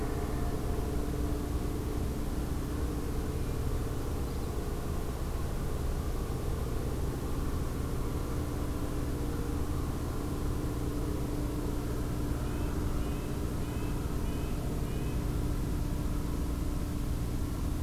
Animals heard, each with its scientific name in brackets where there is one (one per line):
Red-breasted Nuthatch (Sitta canadensis)